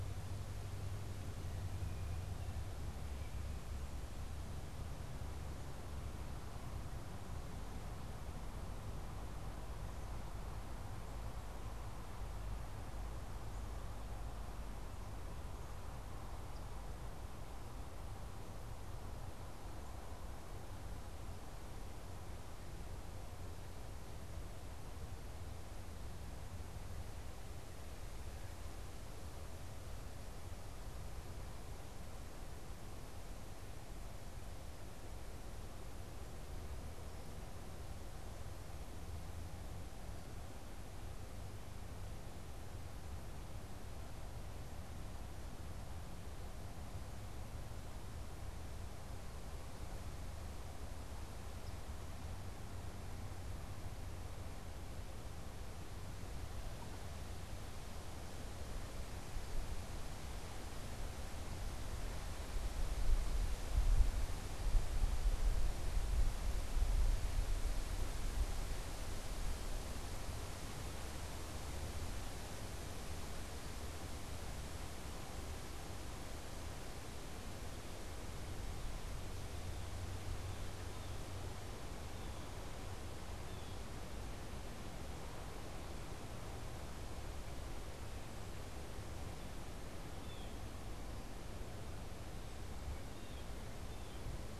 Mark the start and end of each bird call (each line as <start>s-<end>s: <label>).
79.0s-84.0s: Blue Jay (Cyanocitta cristata)
90.1s-94.6s: Blue Jay (Cyanocitta cristata)